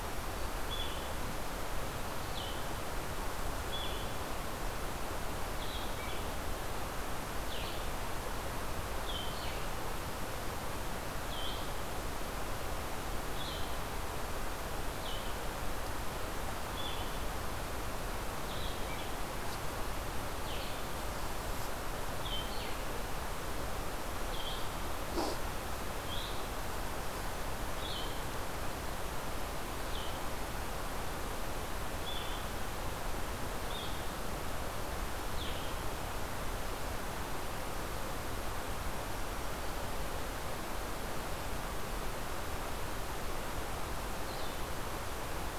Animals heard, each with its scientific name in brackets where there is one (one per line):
Blue-headed Vireo (Vireo solitarius)